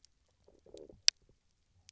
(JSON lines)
{"label": "biophony, low growl", "recorder": "SoundTrap 300"}